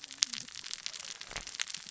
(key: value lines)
label: biophony, cascading saw
recorder: SoundTrap 600 or HydroMoth